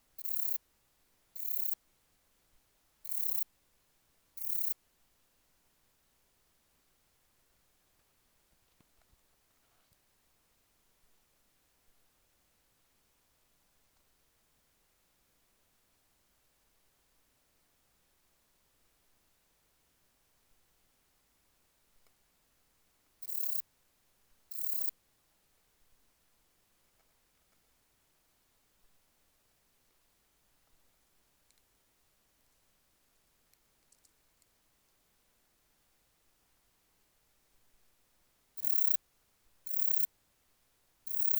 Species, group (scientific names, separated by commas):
Rhacocleis germanica, Orthoptera